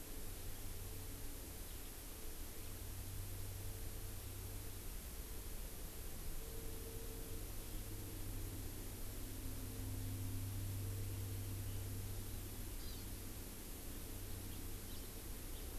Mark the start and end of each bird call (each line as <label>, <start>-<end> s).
Hawaii Amakihi (Chlorodrepanis virens), 12.7-13.0 s
House Finch (Haemorhous mexicanus), 14.9-15.0 s
House Finch (Haemorhous mexicanus), 15.5-15.6 s